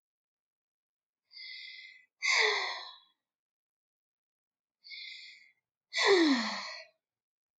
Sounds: Sigh